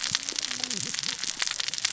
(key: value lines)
label: biophony, cascading saw
recorder: SoundTrap 600 or HydroMoth